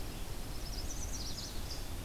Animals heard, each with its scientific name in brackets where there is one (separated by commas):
Eastern Wood-Pewee (Contopus virens), Chestnut-sided Warbler (Setophaga pensylvanica)